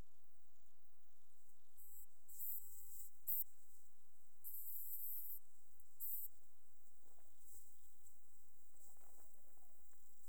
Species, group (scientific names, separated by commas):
Ctenodecticus ramburi, Orthoptera